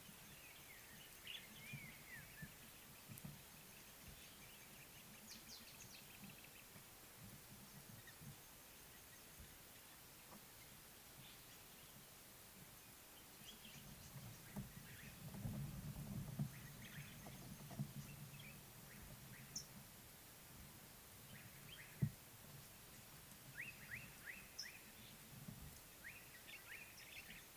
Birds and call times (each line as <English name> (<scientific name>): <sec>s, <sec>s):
Mariqua Sunbird (Cinnyris mariquensis): 19.7s